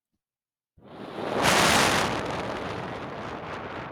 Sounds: Sigh